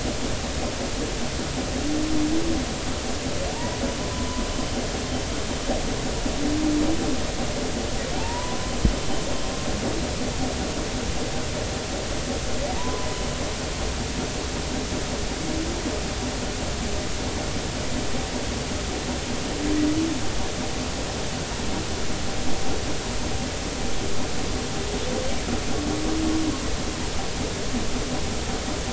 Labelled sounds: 3.5	3.8	humpback whale, 0.86 to 1.0 kHz
4.5	4.8	humpback whale, 3.0 to 3.1 kHz
8.2	8.6	humpback whale, 0.80 to 1.1 kHz
12.8	13.2	humpback whale, 0.86 to 1.1 kHz

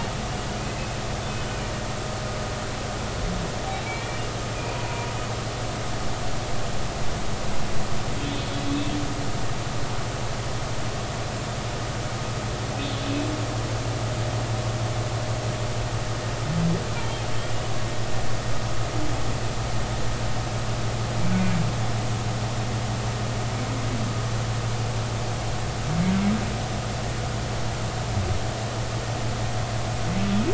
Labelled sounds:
3.8	5.1	humpback whale, 0.93 to 2.4 kHz
8.2	8.6	humpback whale, 3.0 to 3.6 kHz
12.8	13.1	humpback whale, 3.3 to 3.5 kHz

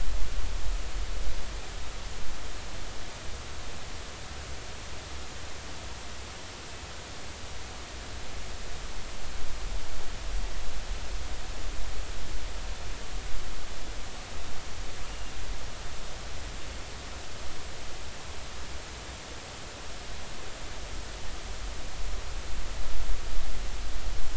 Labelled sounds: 15.1	15.3	killer whale, northern resident, 2.7 to 2.9 kHz

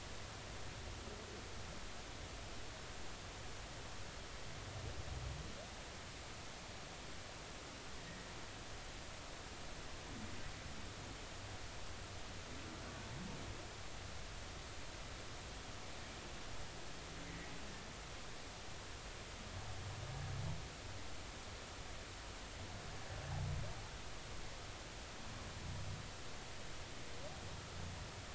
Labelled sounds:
8.0	8.3	humpback whale, 1.8 to 2.0 kHz
17.2	17.5	humpback whale, 1.9 to 2.1 kHz

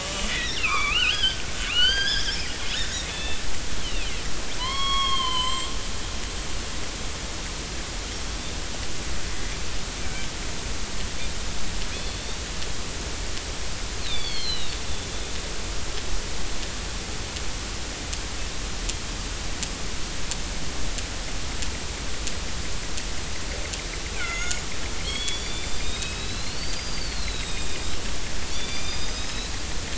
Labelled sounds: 0.0	2.4	killer whale, northern resident, 0.96 to 6.5 kHz
2.8	3.4	killer whale, northern resident, 1.7 to 4.0 kHz
3.8	4.1	killer whale, northern resident, 2.4 to 3.2 kHz
4.6	5.7	killer whale, northern resident, 0.93 to 8.0 kHz
10.0	10.3	killer whale, northern resident, 1.5 to 2.4 kHz
11.9	12.2	killer whale, northern resident, 3.3 to 4.4 kHz
14.0	14.8	killer whale, northern resident, 2.0 to 4.7 kHz
24.1	27.9	killer whale, northern resident, 1.3 to 7.5 kHz
28.4	29.5	killer whale, northern resident, 2.3 to 7.8 kHz

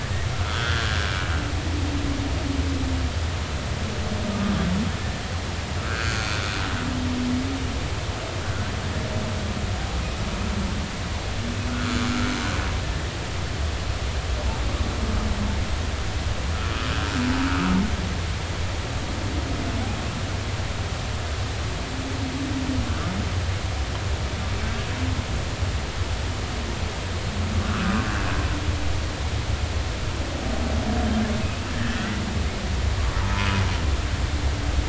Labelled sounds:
0.4	1.1	humpback whale, 1.2 to 1.8 kHz
4.3	4.6	humpback whale, 1.1 to 1.3 kHz
5.8	6.3	humpback whale, 1.2 to 1.6 kHz
11.7	12.0	humpback whale, 1.2 to 1.6 kHz
17.5	17.7	humpback whale, 1.2 to 1.5 kHz
27.7	27.9	humpback whale, 1.1 to 1.6 kHz
31.4	32.0	humpback whale, 1.6 to 2.7 kHz
33.2	33.5	humpback whale, 0.86 to 1.1 kHz

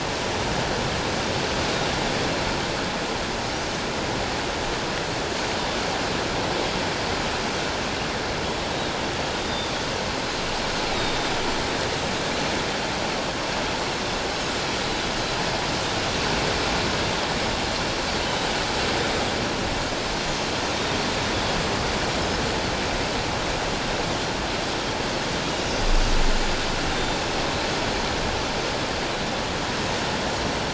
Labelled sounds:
9.4	9.7	Pacific white-sided dolphin, 3.5 to 3.7 kHz
10.9	11.3	Pacific white-sided dolphin, 3.6 to 3.9 kHz
20.7	21.0	Pacific white-sided dolphin, 3.6 to 3.8 kHz

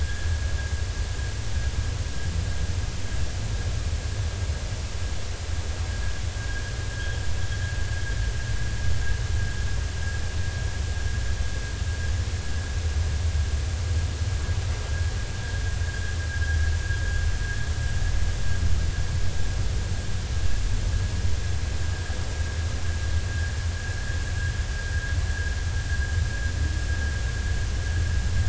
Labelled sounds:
6.4	6.7	vessel noise, 1.5 to 1.7 kHz

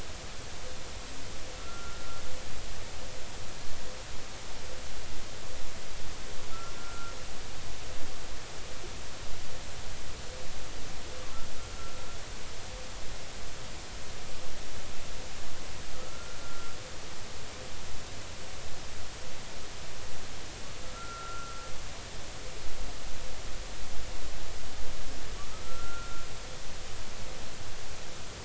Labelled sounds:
1.6	2.2	humpback whale, 1.3 to 1.4 kHz
6.8	7.1	humpback whale, 1.3 to 1.5 kHz
15.9	16.7	humpback whale, 1.2 to 1.4 kHz
20.8	21.6	humpback whale, 1.2 to 1.4 kHz
25.6	26.2	humpback whale, 1.3 to 1.5 kHz

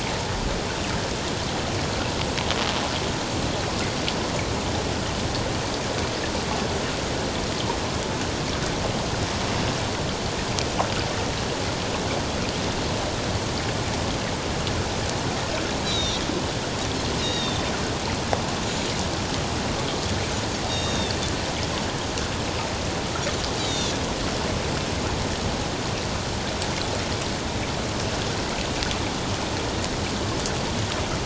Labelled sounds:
15.8	16.2	Pacific white-sided dolphin, 3.5 to 4.0 kHz
17.2	17.6	Pacific white-sided dolphin, 2.7 to 6.7 kHz
20.7	21.1	Pacific white-sided dolphin, 2.7 to 6.6 kHz
23.6	23.9	Pacific white-sided dolphin, 3.3 to 4.0 kHz

